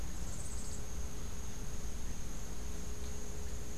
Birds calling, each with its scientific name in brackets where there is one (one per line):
Yellow-faced Grassquit (Tiaris olivaceus)